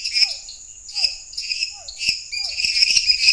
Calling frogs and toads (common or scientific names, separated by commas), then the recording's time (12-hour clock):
Physalaemus cuvieri, lesser tree frog, dwarf tree frog
10:30pm